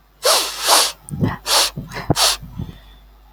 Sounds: Sniff